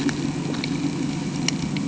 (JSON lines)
{"label": "anthrophony, boat engine", "recorder": "HydroMoth"}